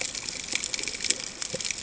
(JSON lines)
{"label": "ambient", "recorder": "HydroMoth"}